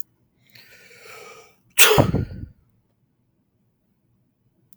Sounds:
Sneeze